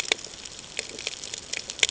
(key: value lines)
label: ambient
recorder: HydroMoth